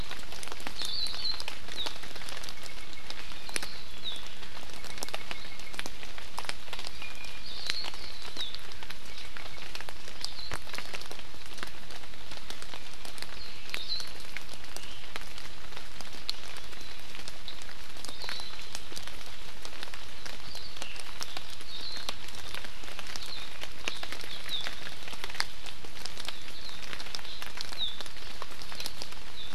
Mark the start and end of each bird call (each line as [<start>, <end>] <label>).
[0.78, 1.38] Hawaii Akepa (Loxops coccineus)
[1.78, 1.88] Warbling White-eye (Zosterops japonicus)
[2.58, 3.08] Apapane (Himatione sanguinea)
[3.88, 4.28] Warbling White-eye (Zosterops japonicus)
[4.68, 5.78] Apapane (Himatione sanguinea)
[6.88, 7.38] Iiwi (Drepanis coccinea)
[7.38, 7.88] Hawaii Akepa (Loxops coccineus)
[24.48, 24.68] Warbling White-eye (Zosterops japonicus)
[26.58, 26.78] Warbling White-eye (Zosterops japonicus)
[27.78, 27.98] Warbling White-eye (Zosterops japonicus)
[29.28, 29.48] Warbling White-eye (Zosterops japonicus)